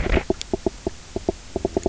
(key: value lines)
label: biophony, knock croak
recorder: SoundTrap 300